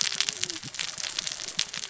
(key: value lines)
label: biophony, cascading saw
recorder: SoundTrap 600 or HydroMoth